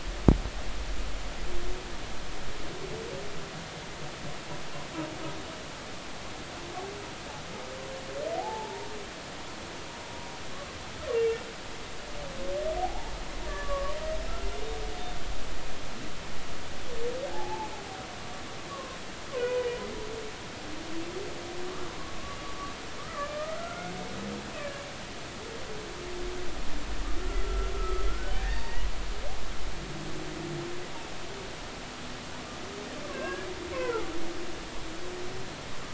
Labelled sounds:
8.4	8.9	humpback whale, 0.80 to 0.99 kHz
12.8	13.9	humpback whale, 0.80 to 1.8 kHz
14.9	15.2	humpback whale, 3.4 to 3.6 kHz
17.3	17.7	humpback whale, 0.80 to 0.93 kHz
18.7	19.7	humpback whale, 0.93 to 2.5 kHz
23.0	23.9	humpback whale, 1.1 to 1.5 kHz
27.4	28.1	humpback whale, 1.2 to 1.4 kHz
28.4	28.9	humpback whale, 0.86 to 4.7 kHz
33.1	34.1	humpback whale, 0.80 to 2.8 kHz

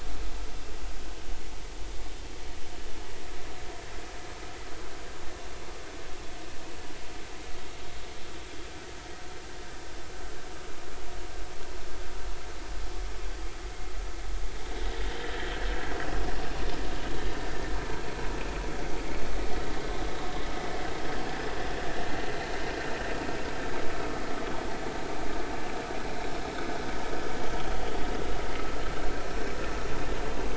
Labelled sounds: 15.2	15.5	vessel noise, 1.7 to 2.0 kHz
22.3	22.6	vessel noise, 4.0 to 4.1 kHz

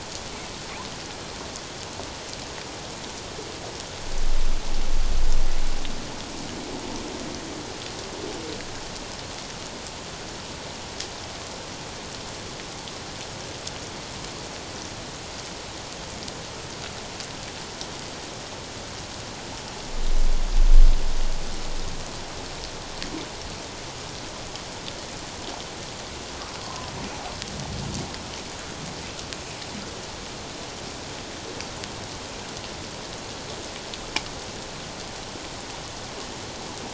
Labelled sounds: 26.6	26.9	humpback whale, 0.91 to 1.1 kHz

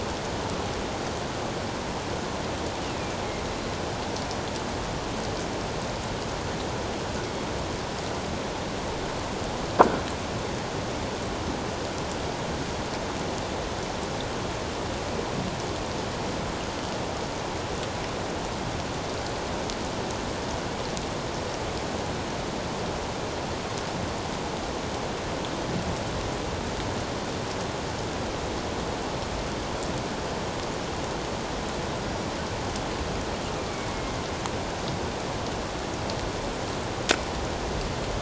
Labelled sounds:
33.7	34.2	killer whale, northern resident, A clan, AA subclan, 2.1 to 2.3 kHz

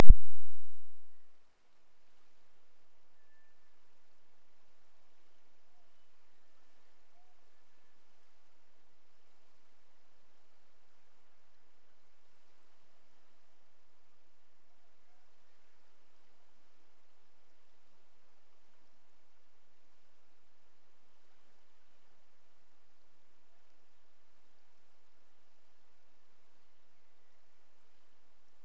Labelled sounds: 3.0	3.9	killer whale, Bigg's (transient), Gulf of Alaska transient, 1.5 to 1.9 kHz
5.9	8.6	killer whale, Bigg's (transient), Gulf of Alaska transient, 0.53 to 3.0 kHz
26.7	28.6	killer whale, Bigg's (transient), Gulf of Alaska transient, 1.7 to 3.1 kHz

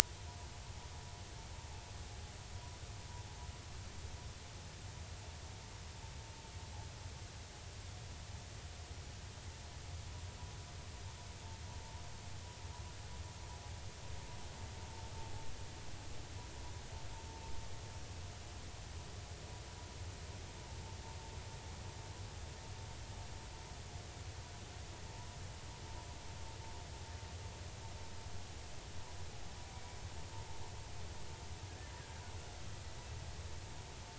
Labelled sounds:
29.7	30.0	killer whale, 2.2 to 2.4 kHz

